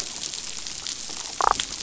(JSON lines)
{"label": "biophony, damselfish", "recorder": "SoundTrap 500"}